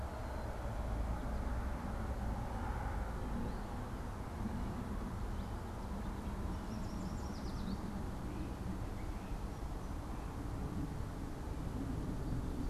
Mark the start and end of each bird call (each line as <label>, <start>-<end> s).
Yellow Warbler (Setophaga petechia), 6.3-8.0 s